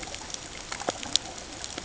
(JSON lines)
{"label": "ambient", "recorder": "HydroMoth"}